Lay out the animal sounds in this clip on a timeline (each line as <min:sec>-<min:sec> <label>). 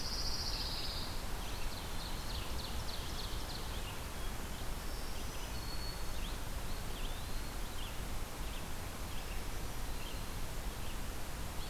0:00.0-0:01.3 Pine Warbler (Setophaga pinus)
0:00.0-0:11.7 Red-eyed Vireo (Vireo olivaceus)
0:01.3-0:02.5 Eastern Wood-Pewee (Contopus virens)
0:01.4-0:03.7 Ovenbird (Seiurus aurocapilla)
0:04.7-0:06.3 Black-throated Green Warbler (Setophaga virens)
0:06.5-0:07.7 Eastern Wood-Pewee (Contopus virens)
0:09.1-0:10.4 Black-throated Green Warbler (Setophaga virens)